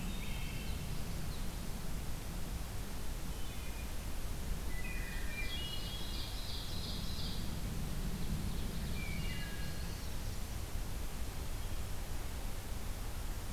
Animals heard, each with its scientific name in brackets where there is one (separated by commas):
Hermit Thrush (Catharus guttatus), Wood Thrush (Hylocichla mustelina), Ovenbird (Seiurus aurocapilla)